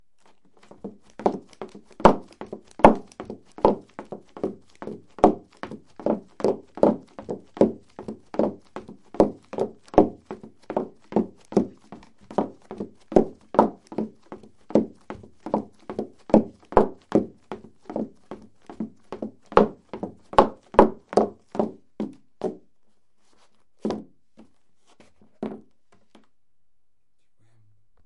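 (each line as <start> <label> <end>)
0.8 Repeated footsteps on a wooden floor indoors. 22.7
23.8 Footsteps on a wooden floor. 24.1
25.4 Footsteps on a wooden floor. 25.7
27.0 A person is whispering. 27.7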